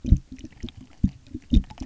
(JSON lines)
{"label": "geophony, waves", "recorder": "SoundTrap 300"}